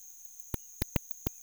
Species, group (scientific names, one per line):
Pterolepis spoliata
Orthoptera